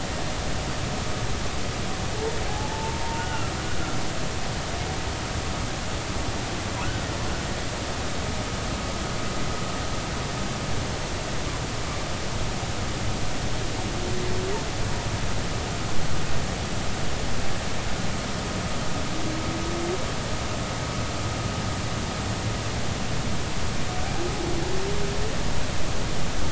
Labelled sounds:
2.5	3.5	humpback whale, 0.80 to 3.0 kHz

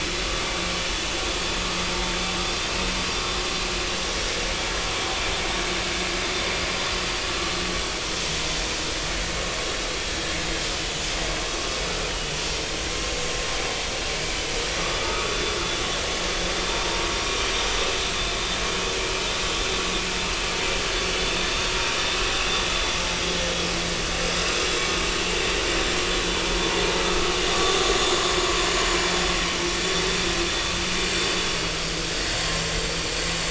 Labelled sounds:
15.0	15.5	vessel noise, 1.1 to 3.6 kHz
21.4	21.7	vessel noise, 3.6 to 3.7 kHz
22.7	22.9	vessel noise, 3.4 to 3.6 kHz

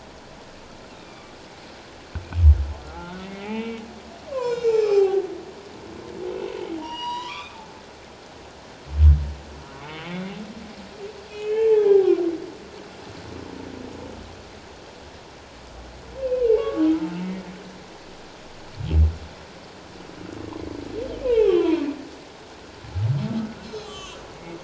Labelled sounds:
1.0	1.3	humpback whale, 2.2 to 2.5 kHz
2.8	3.8	humpback whale, 0.78 to 3.0 kHz
4.3	5.2	humpback whale, 0.78 to 5.4 kHz
6.8	7.6	humpback whale, 0.88 to 5.9 kHz
9.9	10.4	humpback whale, 2.0 to 3.2 kHz
11.3	12.2	humpback whale, 0.78 to 3.2 kHz
16.2	16.9	humpback whale, 1.1 to 3.0 kHz
21.2	21.8	humpback whale, 0.78 to 3.4 kHz
23.6	24.6	humpback whale, 0.94 to 4.2 kHz

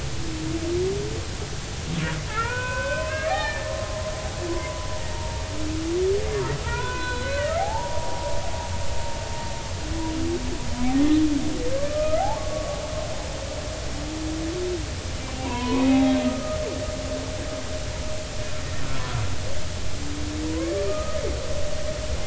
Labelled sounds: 2.3	3.7	humpback whale, 0.80 to 3.1 kHz
4.5	5.4	humpback whale, 0.86 to 1.2 kHz
6.6	8.3	humpback whale, 0.80 to 4.1 kHz
11.8	12.8	humpback whale, 0.80 to 1.6 kHz
15.4	16.6	humpback whale, 0.80 to 2.6 kHz
20.5	21.2	humpback whale, 0.93 to 1.3 kHz

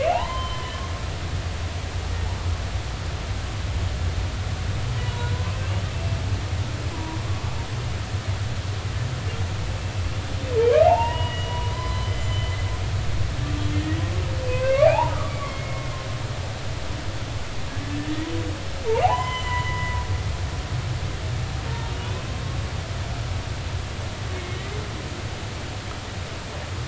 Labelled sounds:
0.0	0.8	humpback whale, 0.80 to 3.2 kHz
5.0	6.2	humpback whale, 0.90 to 3.9 kHz
6.9	7.2	humpback whale, 0.90 to 1.1 kHz
10.6	12.6	humpback whale, 0.80 to 6.1 kHz
13.7	14.0	humpback whale, 1.8 to 2.0 kHz
14.4	15.9	humpback whale, 0.80 to 2.9 kHz
18.0	20.0	humpback whale, 0.80 to 6.1 kHz

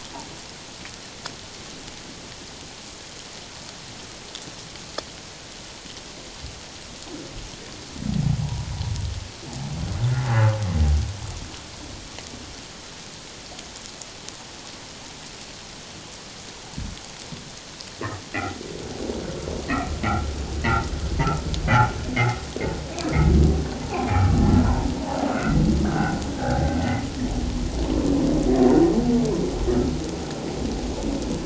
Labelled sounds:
8.4	8.7	humpback whale, 0.78 to 1.0 kHz
18.3	18.6	humpback whale, 1.8 to 2.1 kHz
22.1	22.4	humpback whale, 1.8 to 2.2 kHz
23.8	24.3	humpback whale, 0.78 to 2.5 kHz
25.3	26.8	humpback whale, 1.3 to 2.2 kHz

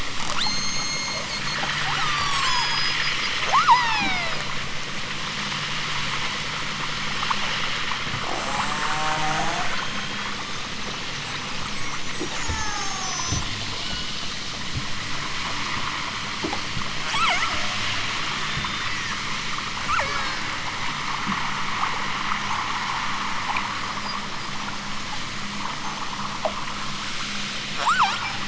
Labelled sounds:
0.3	1.6	killer whale, southern Alaska resident, 1.5 to 8.0 kHz
2.1	4.5	killer whale, southern Alaska resident, 0.32 to 8.0 kHz
9.7	10.7	killer whale, southern Alaska resident, 0.73 to 4.1 kHz
11.7	13.4	killer whale, southern Alaska resident, 0.41 to 8.0 kHz
13.8	14.3	killer whale, southern Alaska resident, 0.60 to 4.0 kHz
17.0	17.9	killer whale, southern Alaska resident, 0.41 to 8.0 kHz
18.4	19.4	killer whale, southern Alaska resident, 3.0 to 7.8 kHz
19.9	20.6	killer whale, southern Alaska resident, 0.41 to 8.0 kHz
27.7	28.4	killer whale, southern Alaska resident, 0.32 to 8.0 kHz

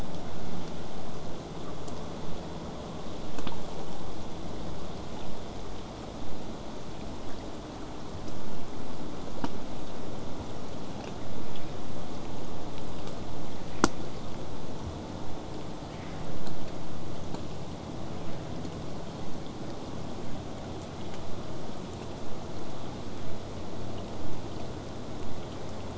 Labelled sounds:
18.2	23.2	vessel noise, 0 to 8.0 kHz

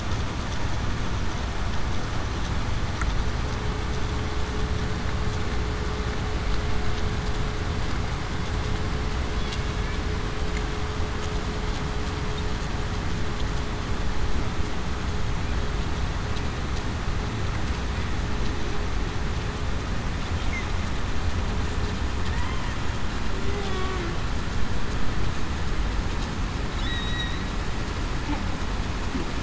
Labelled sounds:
23.7	24.0	humpback whale, 1.10 to 1.15 kHz
26.8	27.3	humpback whale, 3.7 to 3.9 kHz

